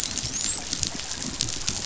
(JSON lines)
{"label": "biophony, dolphin", "recorder": "SoundTrap 500"}